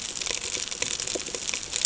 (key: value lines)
label: ambient
recorder: HydroMoth